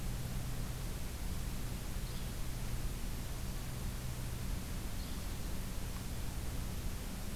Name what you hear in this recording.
Yellow-bellied Flycatcher